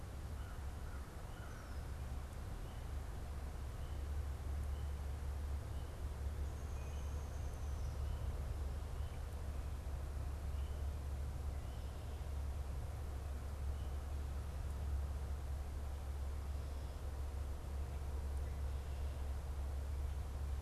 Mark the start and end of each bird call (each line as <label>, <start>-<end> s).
American Crow (Corvus brachyrhynchos), 0.2-2.0 s
Downy Woodpecker (Dryobates pubescens), 6.4-8.2 s